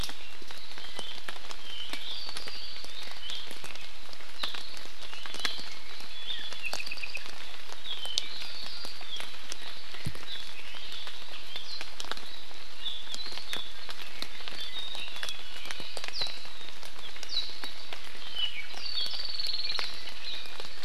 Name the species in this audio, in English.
Apapane